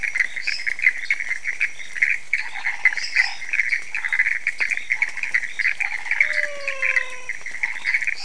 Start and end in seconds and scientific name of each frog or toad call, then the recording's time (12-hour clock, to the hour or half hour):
0.4	0.7	Dendropsophus minutus
2.4	6.3	Boana raniceps
2.9	3.3	Dendropsophus minutus
3.6	8.2	Dendropsophus nanus
3.9	4.3	Phyllomedusa sauvagii
6.0	7.5	Physalaemus albonotatus
7.6	8.2	Boana raniceps
~2am